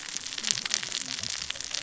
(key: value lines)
label: biophony, cascading saw
recorder: SoundTrap 600 or HydroMoth